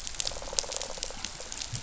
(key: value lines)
label: biophony
recorder: SoundTrap 500